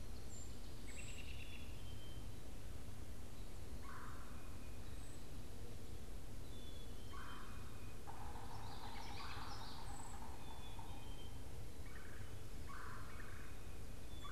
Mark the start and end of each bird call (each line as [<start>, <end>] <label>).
[0.00, 2.55] Black-capped Chickadee (Poecile atricapillus)
[0.25, 1.25] Brown Creeper (Certhia americana)
[3.65, 14.31] Red-bellied Woodpecker (Melanerpes carolinus)
[4.75, 5.35] Brown Creeper (Certhia americana)
[6.35, 14.31] Black-capped Chickadee (Poecile atricapillus)
[8.55, 9.85] Common Yellowthroat (Geothlypis trichas)
[9.85, 14.31] Brown Creeper (Certhia americana)